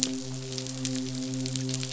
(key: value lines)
label: biophony, midshipman
recorder: SoundTrap 500